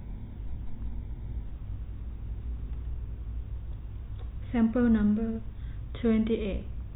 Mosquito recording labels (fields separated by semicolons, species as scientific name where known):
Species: no mosquito; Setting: cup